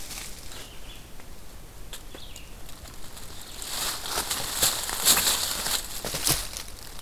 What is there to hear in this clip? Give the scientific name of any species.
Vireo olivaceus